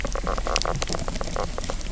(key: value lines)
label: biophony, knock croak
recorder: SoundTrap 300